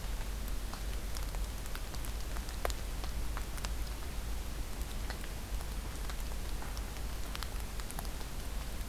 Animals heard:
forest ambience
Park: Acadia National Park